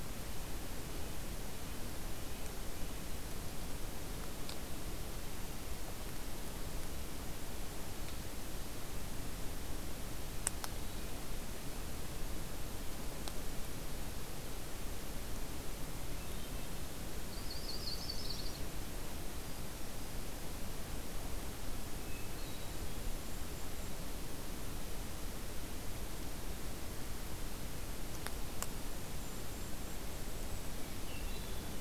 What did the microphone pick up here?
Red-breasted Nuthatch, Hermit Thrush, Yellow-rumped Warbler, Black-throated Green Warbler, Golden-crowned Kinglet